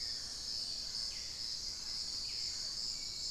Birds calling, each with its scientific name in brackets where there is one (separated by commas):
Long-winged Antwren (Myrmotherula longipennis), Thrush-like Wren (Campylorhynchus turdinus), Hauxwell's Thrush (Turdus hauxwelli)